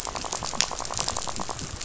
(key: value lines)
label: biophony, rattle
recorder: SoundTrap 500